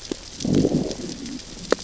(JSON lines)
{"label": "biophony, growl", "recorder": "SoundTrap 600 or HydroMoth"}